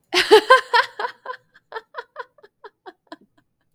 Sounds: Laughter